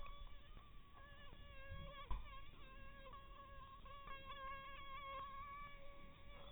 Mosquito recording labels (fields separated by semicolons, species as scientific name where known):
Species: mosquito; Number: one; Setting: cup